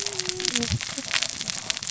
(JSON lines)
{"label": "biophony, cascading saw", "recorder": "SoundTrap 600 or HydroMoth"}